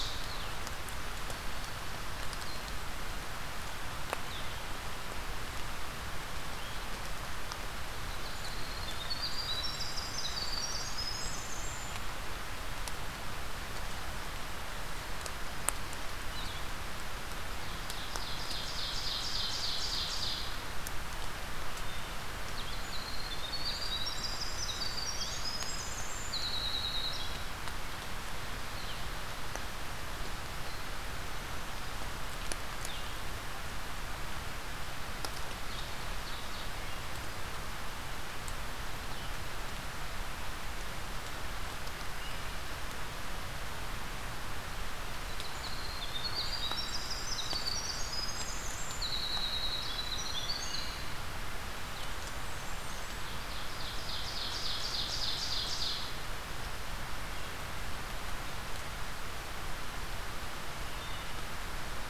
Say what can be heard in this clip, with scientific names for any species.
Vireo solitarius, Troglodytes hiemalis, Seiurus aurocapilla, Setophaga fusca, Hylocichla mustelina